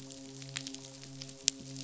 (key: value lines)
label: biophony, midshipman
recorder: SoundTrap 500